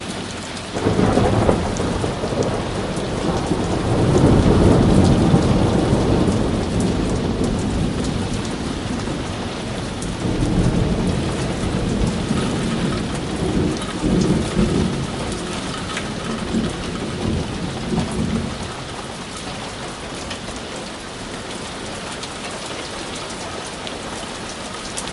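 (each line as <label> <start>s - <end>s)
A deep rumble of thunder rolls as rain pours and wind howls, accompanied by a loud crack and the sharp strike of lightning in the distance. 0.0s - 25.1s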